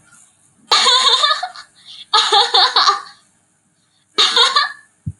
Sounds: Laughter